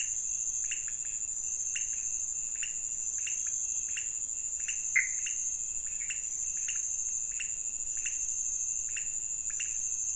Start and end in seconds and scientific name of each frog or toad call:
0.0	10.1	Leptodactylus podicipinus
4.8	5.2	Pithecopus azureus